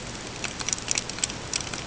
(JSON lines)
{"label": "ambient", "recorder": "HydroMoth"}